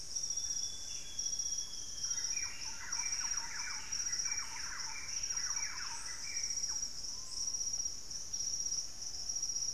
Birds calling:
Screaming Piha (Lipaugus vociferans), unidentified bird, Buff-breasted Wren (Cantorchilus leucotis), Amazonian Grosbeak (Cyanoloxia rothschildii), Thrush-like Wren (Campylorhynchus turdinus), Russet-backed Oropendola (Psarocolius angustifrons)

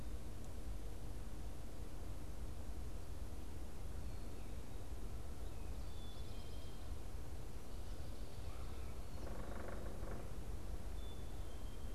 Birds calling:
Black-capped Chickadee (Poecile atricapillus), unidentified bird

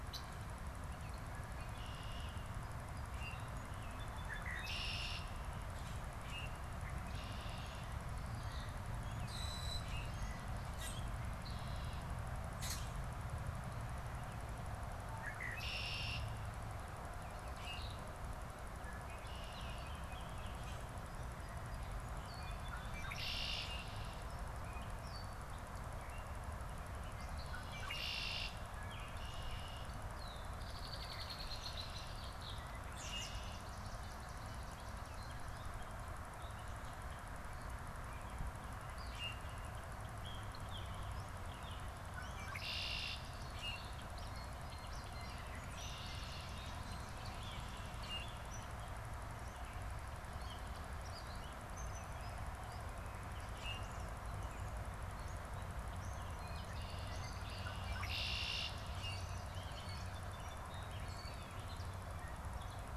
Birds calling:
Common Grackle (Quiscalus quiscula), Red-winged Blackbird (Agelaius phoeniceus), Song Sparrow (Melospiza melodia), Swamp Sparrow (Melospiza georgiana), Gray Catbird (Dumetella carolinensis), American Robin (Turdus migratorius), Baltimore Oriole (Icterus galbula)

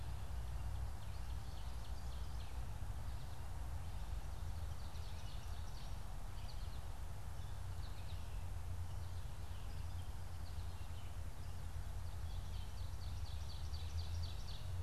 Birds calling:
Ovenbird (Seiurus aurocapilla), American Goldfinch (Spinus tristis)

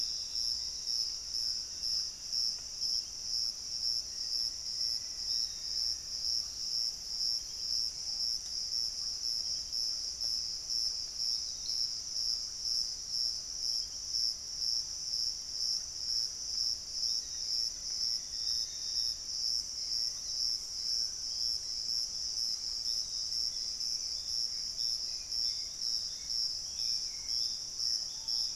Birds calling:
Hauxwell's Thrush (Turdus hauxwelli), Screaming Piha (Lipaugus vociferans), Black-faced Antthrush (Formicarius analis), unidentified bird, Piratic Flycatcher (Legatus leucophaius), Gray Antbird (Cercomacra cinerascens)

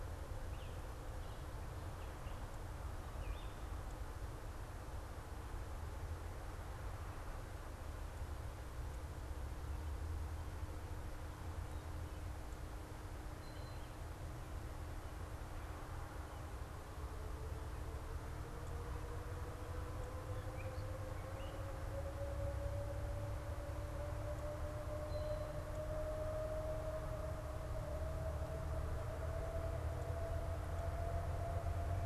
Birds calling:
Red-eyed Vireo (Vireo olivaceus)

